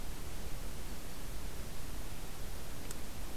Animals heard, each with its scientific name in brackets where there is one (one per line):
Black-throated Green Warbler (Setophaga virens)